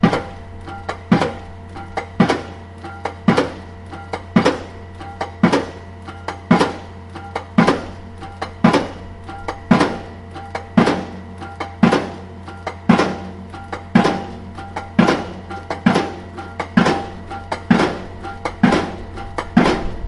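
Continuous rhythmic piling sound. 0.0 - 20.1

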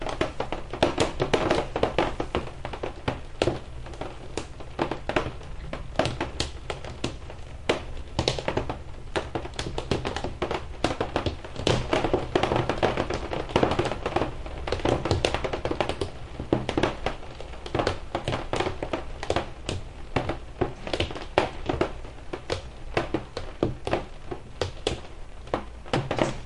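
Light rain knocks on a window. 0.0 - 26.4

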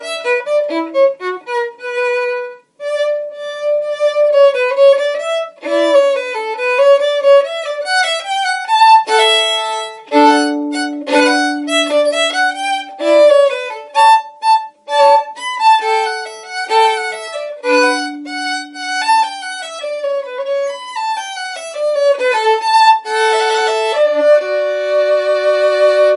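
A violin plays classical music clearly. 0.0 - 26.2

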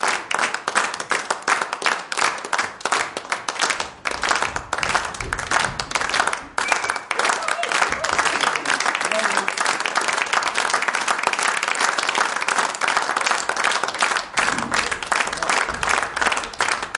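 A crowd applauds, gradually increasing in volume. 0.0 - 17.0

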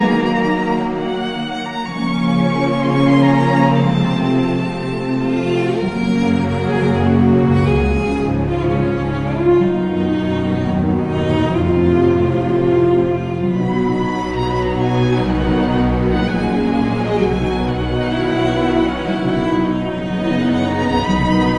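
An orchestra plays calmly and soothingly, featuring stringed instruments and multiple theme variations. 0.1 - 21.6

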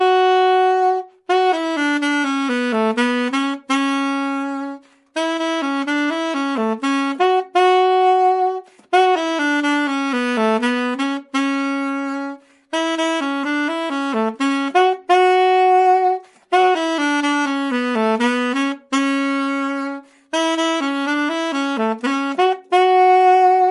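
A saxophone is playing. 0.0 - 23.7

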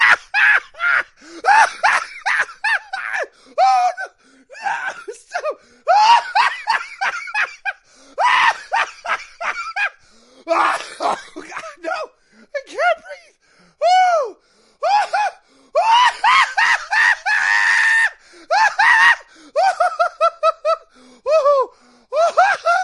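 A man laughs loudly. 0.0 - 22.8

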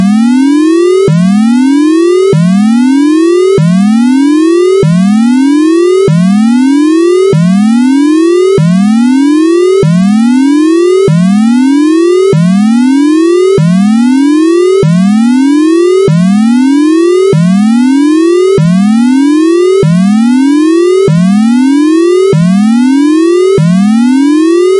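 A computer-generated siren repeating with rising and falling tones. 0.0 - 24.8

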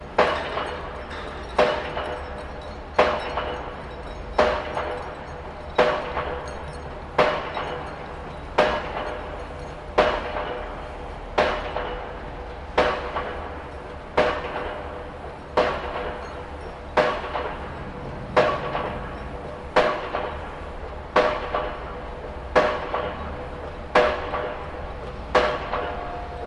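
Hammering sounds rhythmically at a construction site. 0.0 - 26.5

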